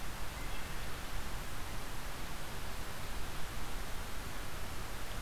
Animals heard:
Wood Thrush (Hylocichla mustelina)

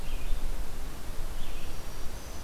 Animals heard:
Red-eyed Vireo (Vireo olivaceus)
Black-throated Green Warbler (Setophaga virens)

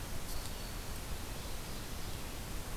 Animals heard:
Black-throated Green Warbler (Setophaga virens)
Ovenbird (Seiurus aurocapilla)

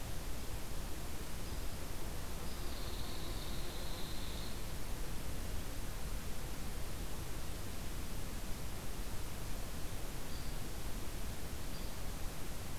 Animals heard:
Hairy Woodpecker (Dryobates villosus)

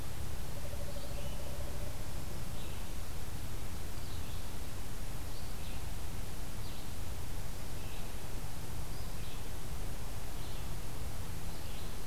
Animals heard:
Black-throated Green Warbler (Setophaga virens)
Pileated Woodpecker (Dryocopus pileatus)
Red-eyed Vireo (Vireo olivaceus)

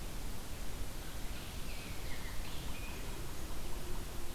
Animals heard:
Rose-breasted Grosbeak (Pheucticus ludovicianus)
Ovenbird (Seiurus aurocapilla)

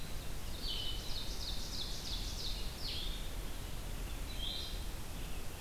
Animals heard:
Ovenbird (Seiurus aurocapilla)
Blue-headed Vireo (Vireo solitarius)

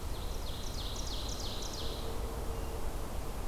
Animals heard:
Ovenbird (Seiurus aurocapilla)

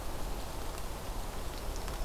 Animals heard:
Black-throated Green Warbler (Setophaga virens)

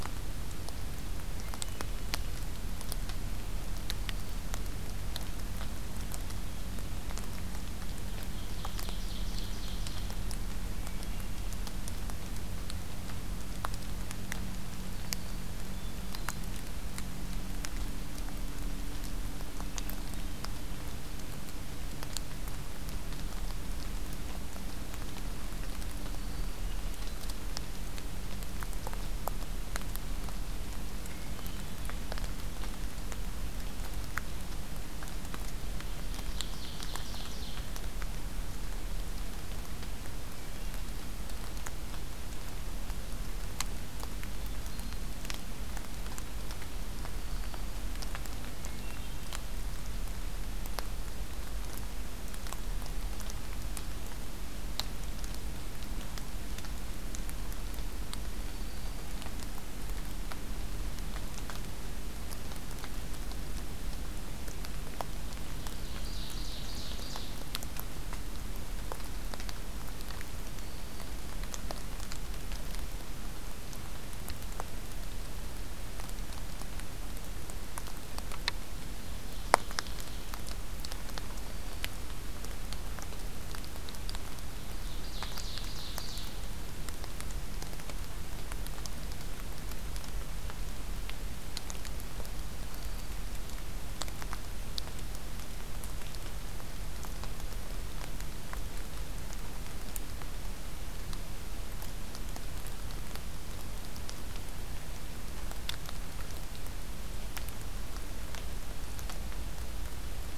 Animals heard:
Hermit Thrush (Catharus guttatus)
Black-throated Green Warbler (Setophaga virens)
Ovenbird (Seiurus aurocapilla)

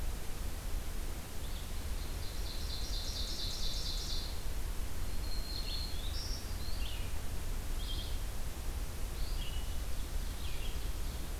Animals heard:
Red-eyed Vireo (Vireo olivaceus)
Black-throated Green Warbler (Setophaga virens)
Ovenbird (Seiurus aurocapilla)

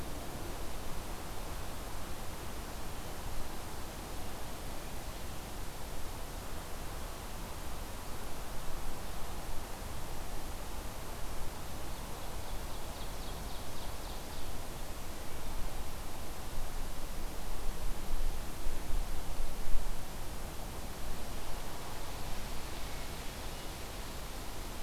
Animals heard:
Ovenbird (Seiurus aurocapilla)

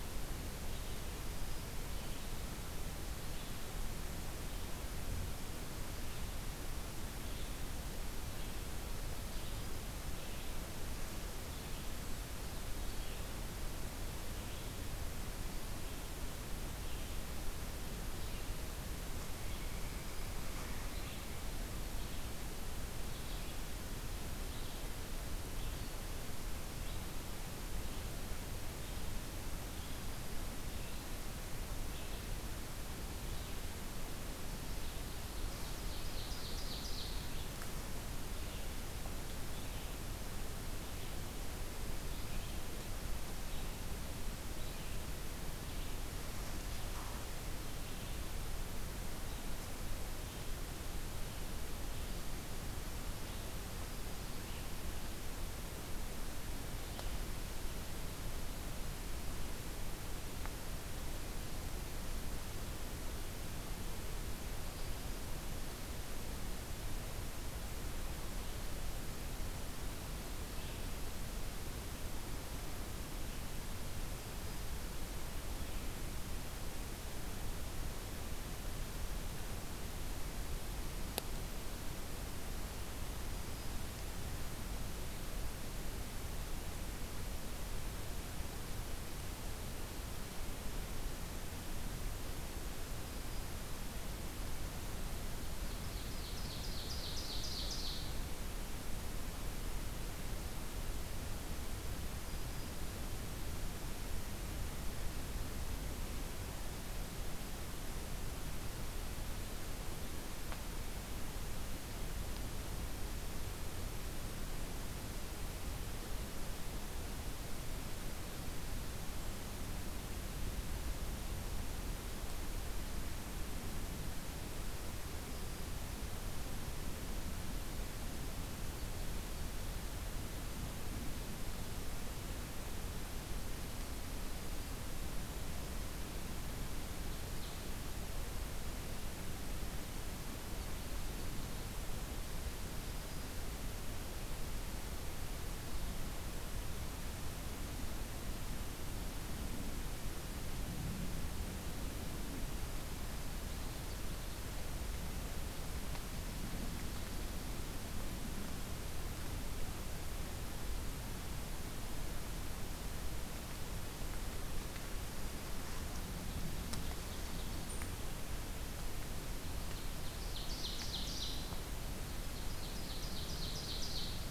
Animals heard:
Black-throated Green Warbler (Setophaga virens)
Pileated Woodpecker (Dryocopus pileatus)
Ovenbird (Seiurus aurocapilla)
Red-eyed Vireo (Vireo olivaceus)

